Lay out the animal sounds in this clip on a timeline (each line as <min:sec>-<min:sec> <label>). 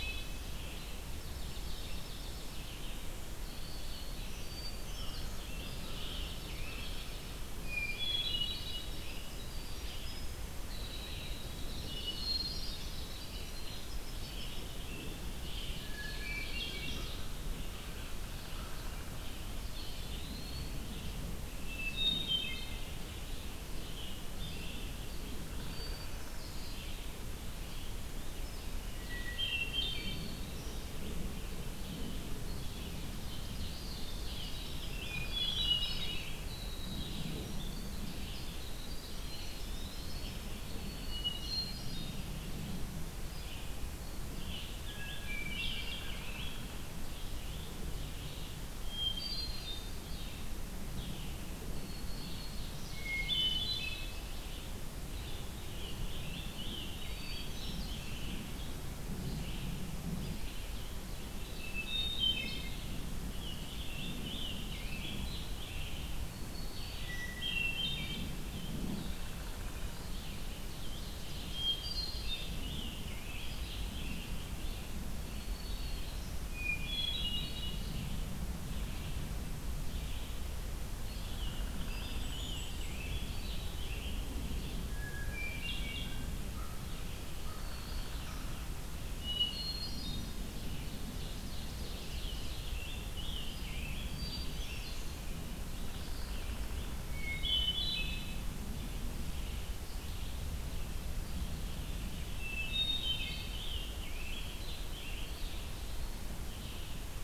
0:00.0-1:37.4 Red-eyed Vireo (Vireo olivaceus)
0:01.0-0:02.8 Dark-eyed Junco (Junco hyemalis)
0:03.3-0:04.5 Black-throated Green Warbler (Setophaga virens)
0:04.4-0:05.5 Hermit Thrush (Catharus guttatus)
0:04.6-0:06.9 Scarlet Tanager (Piranga olivacea)
0:05.6-0:07.4 Dark-eyed Junco (Junco hyemalis)
0:07.6-0:09.2 Hermit Thrush (Catharus guttatus)
0:08.5-0:14.6 Winter Wren (Troglodytes hiemalis)
0:11.4-0:13.3 Dark-eyed Junco (Junco hyemalis)
0:11.8-0:12.9 Hermit Thrush (Catharus guttatus)
0:14.0-0:15.9 Scarlet Tanager (Piranga olivacea)
0:15.6-0:17.3 Ovenbird (Seiurus aurocapilla)
0:15.8-0:17.1 Hermit Thrush (Catharus guttatus)
0:15.9-0:17.1 Black-throated Green Warbler (Setophaga virens)
0:19.6-0:20.9 Eastern Wood-Pewee (Contopus virens)
0:21.5-0:23.1 Hermit Thrush (Catharus guttatus)
0:25.3-0:26.7 Downy Woodpecker (Dryobates pubescens)
0:25.6-0:26.7 Hermit Thrush (Catharus guttatus)
0:28.8-0:30.6 Hermit Thrush (Catharus guttatus)
0:29.7-0:30.8 Black-throated Green Warbler (Setophaga virens)
0:33.0-0:35.4 Ovenbird (Seiurus aurocapilla)
0:33.6-0:34.5 Eastern Wood-Pewee (Contopus virens)
0:34.3-0:40.5 Winter Wren (Troglodytes hiemalis)
0:34.9-0:36.3 Hermit Thrush (Catharus guttatus)
0:39.1-0:40.4 Eastern Wood-Pewee (Contopus virens)
0:40.4-0:41.6 Black-throated Green Warbler (Setophaga virens)
0:41.0-0:42.3 Hermit Thrush (Catharus guttatus)
0:44.3-0:46.7 Scarlet Tanager (Piranga olivacea)
0:44.7-0:46.1 Hermit Thrush (Catharus guttatus)
0:48.7-0:50.0 Hermit Thrush (Catharus guttatus)
0:51.6-0:53.1 Black-throated Green Warbler (Setophaga virens)
0:52.5-0:54.5 Ovenbird (Seiurus aurocapilla)
0:53.0-0:54.2 Hermit Thrush (Catharus guttatus)
0:55.1-0:58.7 Scarlet Tanager (Piranga olivacea)
0:56.9-0:58.5 Hermit Thrush (Catharus guttatus)
1:01.5-1:02.8 Hermit Thrush (Catharus guttatus)
1:03.1-1:06.2 Scarlet Tanager (Piranga olivacea)
1:06.2-1:07.5 Black-throated Green Warbler (Setophaga virens)
1:07.0-1:08.3 Hermit Thrush (Catharus guttatus)
1:09.2-1:10.4 Eastern Wood-Pewee (Contopus virens)
1:10.5-1:12.2 Ovenbird (Seiurus aurocapilla)
1:11.4-1:12.4 Hermit Thrush (Catharus guttatus)
1:12.0-1:14.3 Scarlet Tanager (Piranga olivacea)
1:15.2-1:16.5 Black-throated Green Warbler (Setophaga virens)
1:16.5-1:17.8 Hermit Thrush (Catharus guttatus)
1:21.1-1:24.2 Scarlet Tanager (Piranga olivacea)
1:21.8-1:23.1 Hermit Thrush (Catharus guttatus)
1:24.7-1:26.5 Hermit Thrush (Catharus guttatus)
1:26.5-1:28.6 American Crow (Corvus brachyrhynchos)
1:27.2-1:28.6 Black-throated Green Warbler (Setophaga virens)
1:29.0-1:30.5 Hermit Thrush (Catharus guttatus)
1:30.6-1:33.1 Ovenbird (Seiurus aurocapilla)
1:31.9-1:34.9 Scarlet Tanager (Piranga olivacea)
1:34.0-1:35.3 Hermit Thrush (Catharus guttatus)
1:36.8-1:38.4 Hermit Thrush (Catharus guttatus)
1:38.5-1:47.2 Red-eyed Vireo (Vireo olivaceus)
1:42.4-1:43.6 Hermit Thrush (Catharus guttatus)
1:43.0-1:45.7 Scarlet Tanager (Piranga olivacea)
1:45.2-1:46.3 Eastern Wood-Pewee (Contopus virens)